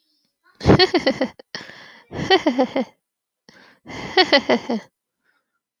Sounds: Laughter